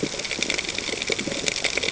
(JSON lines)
{"label": "ambient", "recorder": "HydroMoth"}